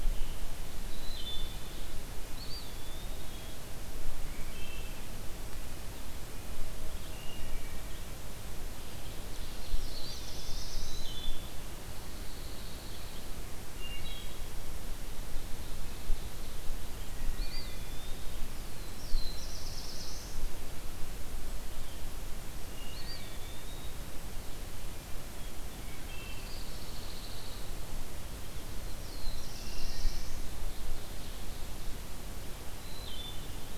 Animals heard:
Eastern Wood-Pewee (Contopus virens), Black-throated Blue Warbler (Setophaga caerulescens), Wood Thrush (Hylocichla mustelina), Pine Warbler (Setophaga pinus), Ovenbird (Seiurus aurocapilla)

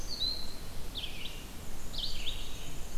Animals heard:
Red-eyed Vireo (Vireo olivaceus), Black-and-white Warbler (Mniotilta varia)

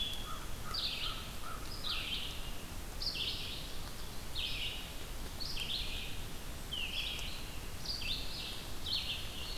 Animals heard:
American Crow (Corvus brachyrhynchos), Red-eyed Vireo (Vireo olivaceus)

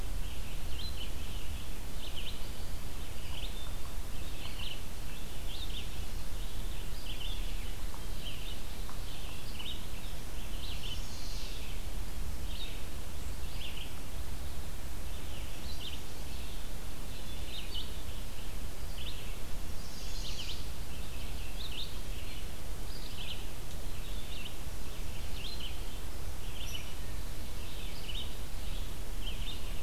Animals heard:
Chestnut-sided Warbler (Setophaga pensylvanica), Red-eyed Vireo (Vireo olivaceus)

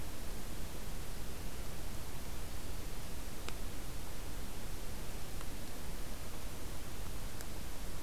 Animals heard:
Black-throated Green Warbler (Setophaga virens)

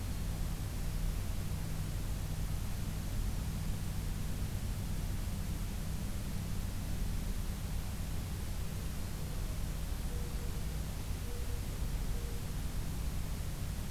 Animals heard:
Mourning Dove (Zenaida macroura)

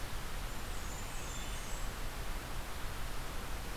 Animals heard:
Wood Thrush (Hylocichla mustelina), Blackburnian Warbler (Setophaga fusca)

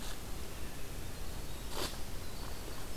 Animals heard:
Winter Wren (Troglodytes hiemalis)

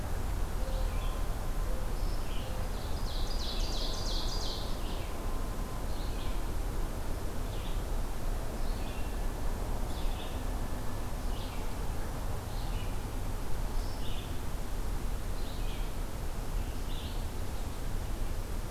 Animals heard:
Red-eyed Vireo (Vireo olivaceus), Ovenbird (Seiurus aurocapilla)

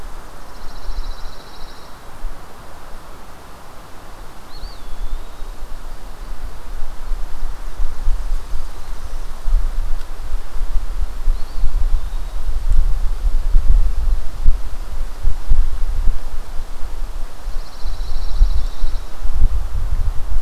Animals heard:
Pine Warbler (Setophaga pinus), Eastern Wood-Pewee (Contopus virens)

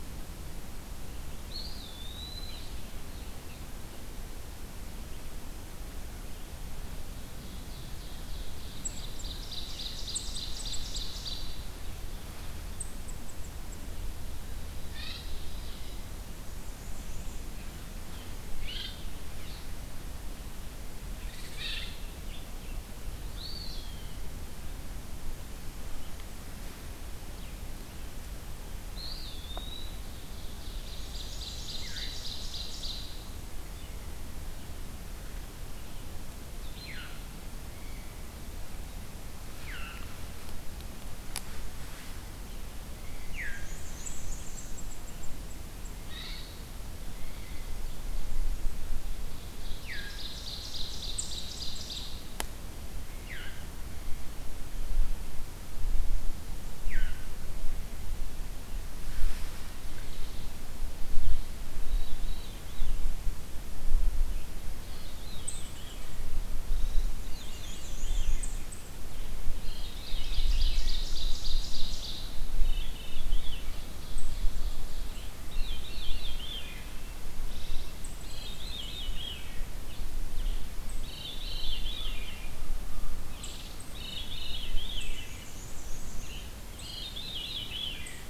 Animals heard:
Eastern Wood-Pewee (Contopus virens), unidentified call, Ovenbird (Seiurus aurocapilla), Black-and-white Warbler (Mniotilta varia), Blackburnian Warbler (Setophaga fusca), Veery (Catharus fuscescens), American Crow (Corvus brachyrhynchos)

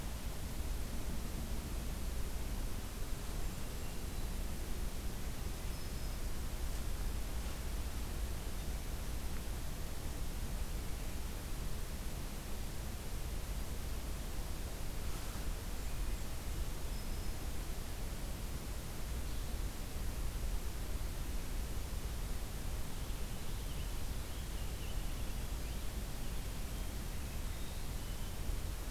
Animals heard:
Black-throated Green Warbler (Setophaga virens), American Robin (Turdus migratorius), Blackburnian Warbler (Setophaga fusca)

